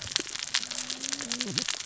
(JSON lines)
{"label": "biophony, cascading saw", "recorder": "SoundTrap 600 or HydroMoth"}